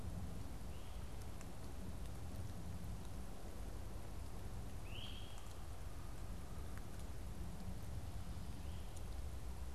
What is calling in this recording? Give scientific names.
Myiarchus crinitus